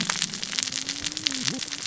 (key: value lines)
label: biophony, cascading saw
recorder: SoundTrap 600 or HydroMoth